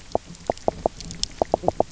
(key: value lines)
label: biophony, knock croak
recorder: SoundTrap 300